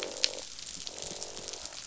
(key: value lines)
label: biophony, croak
recorder: SoundTrap 500